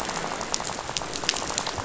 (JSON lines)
{"label": "biophony, rattle", "recorder": "SoundTrap 500"}